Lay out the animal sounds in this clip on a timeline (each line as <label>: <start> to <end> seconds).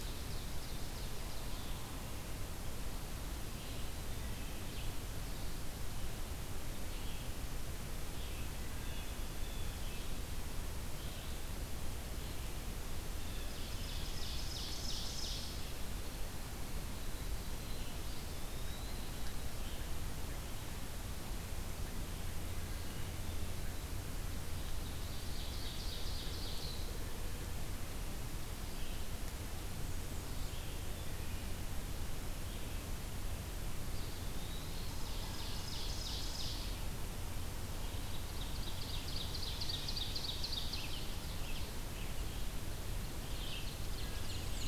Ovenbird (Seiurus aurocapilla): 0.0 to 1.5 seconds
Red-eyed Vireo (Vireo olivaceus): 0.0 to 5.1 seconds
Red-eyed Vireo (Vireo olivaceus): 6.8 to 44.7 seconds
Blue Jay (Cyanocitta cristata): 8.6 to 10.1 seconds
Ovenbird (Seiurus aurocapilla): 12.9 to 16.0 seconds
Eastern Wood-Pewee (Contopus virens): 18.0 to 19.4 seconds
Ovenbird (Seiurus aurocapilla): 24.6 to 27.1 seconds
Black-and-white Warbler (Mniotilta varia): 29.2 to 30.5 seconds
Eastern Wood-Pewee (Contopus virens): 33.8 to 35.0 seconds
Ovenbird (Seiurus aurocapilla): 34.4 to 36.7 seconds
Ovenbird (Seiurus aurocapilla): 37.9 to 41.8 seconds
Ovenbird (Seiurus aurocapilla): 42.9 to 44.7 seconds
Black-and-white Warbler (Mniotilta varia): 43.8 to 44.7 seconds